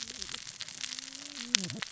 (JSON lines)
{"label": "biophony, cascading saw", "recorder": "SoundTrap 600 or HydroMoth"}